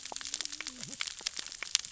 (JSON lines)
{"label": "biophony, cascading saw", "recorder": "SoundTrap 600 or HydroMoth"}